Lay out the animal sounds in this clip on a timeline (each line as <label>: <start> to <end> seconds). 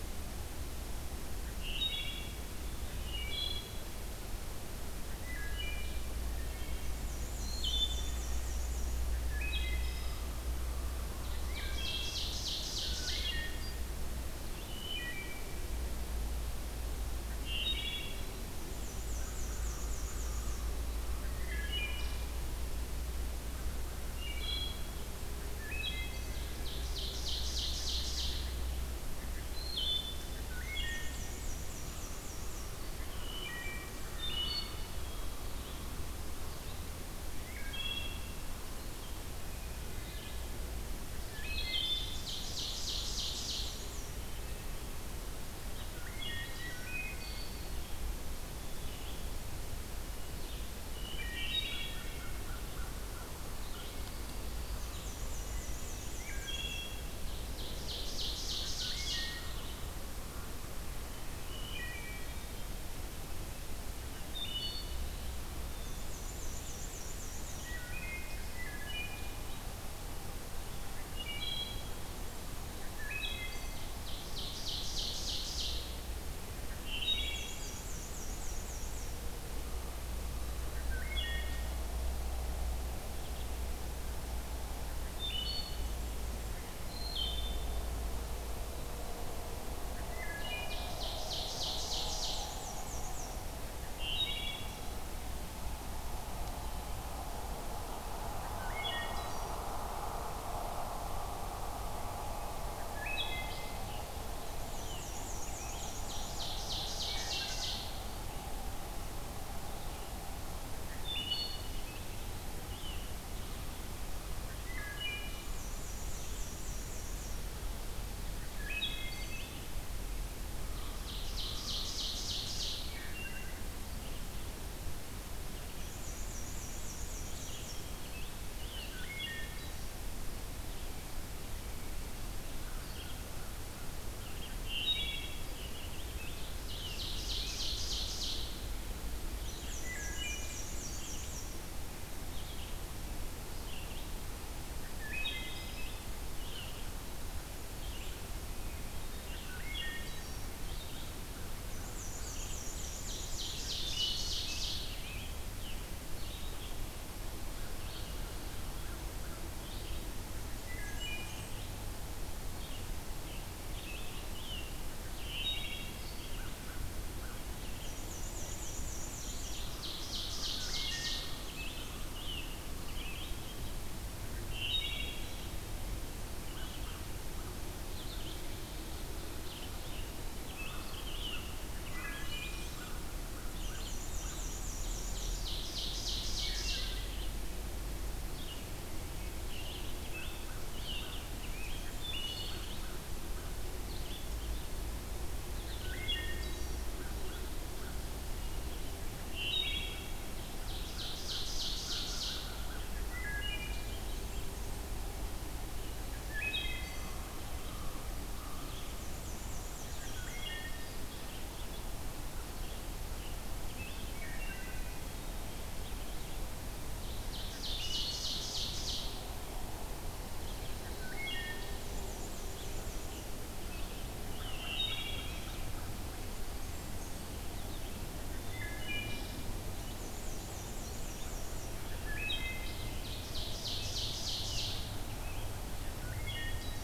Wood Thrush (Hylocichla mustelina): 1.6 to 2.4 seconds
Wood Thrush (Hylocichla mustelina): 2.9 to 3.8 seconds
Wood Thrush (Hylocichla mustelina): 5.2 to 7.0 seconds
Black-and-white Warbler (Mniotilta varia): 6.9 to 8.9 seconds
Wood Thrush (Hylocichla mustelina): 7.5 to 8.3 seconds
Wood Thrush (Hylocichla mustelina): 9.3 to 10.3 seconds
Ovenbird (Seiurus aurocapilla): 11.2 to 13.4 seconds
Wood Thrush (Hylocichla mustelina): 11.4 to 12.3 seconds
Wood Thrush (Hylocichla mustelina): 12.9 to 13.8 seconds
Wood Thrush (Hylocichla mustelina): 14.5 to 15.5 seconds
Wood Thrush (Hylocichla mustelina): 17.3 to 18.3 seconds
Black-and-white Warbler (Mniotilta varia): 18.6 to 20.7 seconds
Wood Thrush (Hylocichla mustelina): 21.3 to 22.3 seconds
Wood Thrush (Hylocichla mustelina): 24.0 to 25.0 seconds
Wood Thrush (Hylocichla mustelina): 25.6 to 26.5 seconds
Ovenbird (Seiurus aurocapilla): 26.5 to 28.5 seconds
Wood Thrush (Hylocichla mustelina): 29.5 to 31.3 seconds
Black-and-white Warbler (Mniotilta varia): 30.7 to 32.8 seconds
Wood Thrush (Hylocichla mustelina): 33.1 to 34.9 seconds
Red-eyed Vireo (Vireo olivaceus): 35.3 to 59.9 seconds
Wood Thrush (Hylocichla mustelina): 37.5 to 38.4 seconds
Wood Thrush (Hylocichla mustelina): 39.8 to 40.6 seconds
Wood Thrush (Hylocichla mustelina): 41.0 to 42.4 seconds
Ovenbird (Seiurus aurocapilla): 41.7 to 43.7 seconds
Black-and-white Warbler (Mniotilta varia): 41.9 to 44.1 seconds
Wood Thrush (Hylocichla mustelina): 45.9 to 47.7 seconds
Wood Thrush (Hylocichla mustelina): 50.9 to 52.4 seconds
American Crow (Corvus brachyrhynchos): 51.6 to 53.9 seconds
Black-and-white Warbler (Mniotilta varia): 54.8 to 56.8 seconds
Wood Thrush (Hylocichla mustelina): 56.1 to 57.1 seconds
Ovenbird (Seiurus aurocapilla): 57.2 to 59.4 seconds
Wood Thrush (Hylocichla mustelina): 58.7 to 59.6 seconds
Wood Thrush (Hylocichla mustelina): 61.4 to 62.5 seconds
Wood Thrush (Hylocichla mustelina): 64.3 to 65.0 seconds
Black-and-white Warbler (Mniotilta varia): 65.8 to 67.8 seconds
Wood Thrush (Hylocichla mustelina): 67.7 to 69.4 seconds
Wood Thrush (Hylocichla mustelina): 71.1 to 72.0 seconds
Wood Thrush (Hylocichla mustelina): 72.9 to 73.8 seconds
Ovenbird (Seiurus aurocapilla): 73.7 to 76.1 seconds
Wood Thrush (Hylocichla mustelina): 76.8 to 77.7 seconds
Black-and-white Warbler (Mniotilta varia): 77.1 to 79.1 seconds
Wood Thrush (Hylocichla mustelina): 80.8 to 81.7 seconds
Wood Thrush (Hylocichla mustelina): 85.0 to 86.0 seconds
Wood Thrush (Hylocichla mustelina): 86.8 to 87.9 seconds
Wood Thrush (Hylocichla mustelina): 90.0 to 90.9 seconds
Ovenbird (Seiurus aurocapilla): 90.2 to 92.6 seconds
Black-and-white Warbler (Mniotilta varia): 91.8 to 93.4 seconds
Wood Thrush (Hylocichla mustelina): 93.8 to 95.0 seconds
Wood Thrush (Hylocichla mustelina): 98.6 to 99.7 seconds
Wood Thrush (Hylocichla mustelina): 102.8 to 103.9 seconds
Rose-breasted Grosbeak (Pheucticus ludovicianus): 103.8 to 105.9 seconds
Black-and-white Warbler (Mniotilta varia): 104.5 to 106.5 seconds
Ovenbird (Seiurus aurocapilla): 105.6 to 107.9 seconds
Wood Thrush (Hylocichla mustelina): 107.0 to 107.6 seconds
Wood Thrush (Hylocichla mustelina): 110.8 to 111.7 seconds
Rose-breasted Grosbeak (Pheucticus ludovicianus): 111.5 to 113.7 seconds
Wood Thrush (Hylocichla mustelina): 114.5 to 115.7 seconds
Black-and-white Warbler (Mniotilta varia): 115.3 to 117.5 seconds
Wood Thrush (Hylocichla mustelina): 118.4 to 119.6 seconds
American Crow (Corvus brachyrhynchos): 120.6 to 122.1 seconds
Ovenbird (Seiurus aurocapilla): 120.7 to 122.9 seconds
Wood Thrush (Hylocichla mustelina): 122.9 to 123.6 seconds
Black-and-white Warbler (Mniotilta varia): 125.7 to 127.6 seconds
Rose-breasted Grosbeak (Pheucticus ludovicianus): 127.0 to 129.7 seconds
Wood Thrush (Hylocichla mustelina): 128.7 to 129.6 seconds
Rose-breasted Grosbeak (Pheucticus ludovicianus): 134.1 to 137.6 seconds
Wood Thrush (Hylocichla mustelina): 134.5 to 135.5 seconds
Ovenbird (Seiurus aurocapilla): 136.4 to 138.5 seconds
Red-eyed Vireo (Vireo olivaceus): 139.2 to 196.1 seconds
Black-and-white Warbler (Mniotilta varia): 139.3 to 141.6 seconds
Wood Thrush (Hylocichla mustelina): 139.9 to 140.6 seconds
Wood Thrush (Hylocichla mustelina): 145.0 to 146.1 seconds
Wood Thrush (Hylocichla mustelina): 149.5 to 150.4 seconds
Black-and-white Warbler (Mniotilta varia): 151.7 to 153.7 seconds
Ovenbird (Seiurus aurocapilla): 152.7 to 154.9 seconds
Rose-breasted Grosbeak (Pheucticus ludovicianus): 153.7 to 155.9 seconds
Wood Thrush (Hylocichla mustelina): 160.6 to 161.4 seconds
Blackburnian Warbler (Setophaga fusca): 160.7 to 161.6 seconds
Rose-breasted Grosbeak (Pheucticus ludovicianus): 163.8 to 164.8 seconds
Wood Thrush (Hylocichla mustelina): 165.1 to 166.2 seconds
Black-and-white Warbler (Mniotilta varia): 167.8 to 169.6 seconds
Ovenbird (Seiurus aurocapilla): 169.2 to 171.4 seconds
Wood Thrush (Hylocichla mustelina): 170.6 to 171.5 seconds
Rose-breasted Grosbeak (Pheucticus ludovicianus): 171.4 to 173.5 seconds
Wood Thrush (Hylocichla mustelina): 174.4 to 175.5 seconds
Rose-breasted Grosbeak (Pheucticus ludovicianus): 179.3 to 182.8 seconds
Wood Thrush (Hylocichla mustelina): 181.8 to 182.7 seconds
Blackburnian Warbler (Setophaga fusca): 181.8 to 182.9 seconds
American Crow (Corvus brachyrhynchos): 182.7 to 184.5 seconds
Black-and-white Warbler (Mniotilta varia): 183.5 to 185.3 seconds
Ovenbird (Seiurus aurocapilla): 184.8 to 187.0 seconds
Rose-breasted Grosbeak (Pheucticus ludovicianus): 189.5 to 192.9 seconds
American Crow (Corvus brachyrhynchos): 190.0 to 193.5 seconds
Blackburnian Warbler (Setophaga fusca): 191.3 to 192.6 seconds
Wood Thrush (Hylocichla mustelina): 195.9 to 196.9 seconds
American Crow (Corvus brachyrhynchos): 196.9 to 198.0 seconds
Wood Thrush (Hylocichla mustelina): 199.2 to 200.4 seconds
Ovenbird (Seiurus aurocapilla): 200.2 to 202.5 seconds
American Crow (Corvus brachyrhynchos): 200.8 to 202.9 seconds
Wood Thrush (Hylocichla mustelina): 203.1 to 204.0 seconds
Blackburnian Warbler (Setophaga fusca): 203.7 to 204.9 seconds
Wood Thrush (Hylocichla mustelina): 206.2 to 206.9 seconds
American Crow (Corvus brachyrhynchos): 207.5 to 208.8 seconds
Black-and-white Warbler (Mniotilta varia): 209.0 to 210.4 seconds
Wood Thrush (Hylocichla mustelina): 210.0 to 211.3 seconds
Rose-breasted Grosbeak (Pheucticus ludovicianus): 212.4 to 214.3 seconds
Wood Thrush (Hylocichla mustelina): 214.1 to 215.4 seconds
Ovenbird (Seiurus aurocapilla): 216.8 to 219.3 seconds
Wood Thrush (Hylocichla mustelina): 217.5 to 218.2 seconds
Wood Thrush (Hylocichla mustelina): 220.8 to 221.8 seconds
Black-and-white Warbler (Mniotilta varia): 221.7 to 223.3 seconds
Wood Thrush (Hylocichla mustelina): 224.2 to 225.5 seconds
Blackburnian Warbler (Setophaga fusca): 226.2 to 227.3 seconds
Wood Thrush (Hylocichla mustelina): 228.1 to 229.3 seconds
Black-and-white Warbler (Mniotilta varia): 229.9 to 231.8 seconds
Wood Thrush (Hylocichla mustelina): 232.1 to 232.8 seconds
Ovenbird (Seiurus aurocapilla): 232.9 to 234.9 seconds
Rose-breasted Grosbeak (Pheucticus ludovicianus): 234.1 to 235.6 seconds
Wood Thrush (Hylocichla mustelina): 235.3 to 236.8 seconds